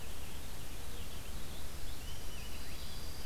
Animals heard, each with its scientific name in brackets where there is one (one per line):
Dark-eyed Junco (Junco hyemalis)
Purple Finch (Haemorhous purpureus)